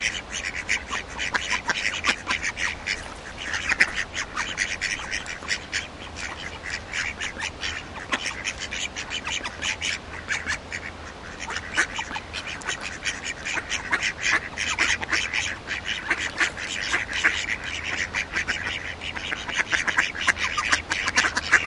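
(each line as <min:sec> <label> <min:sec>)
0:00.1 Gentle sounds of ducks creating a peaceful and serene natural atmosphere. 0:18.6
0:18.7 Ambient sounds of the Panska River with ducks quacking loudly, creating a lively natural soundscape by the water. 0:21.6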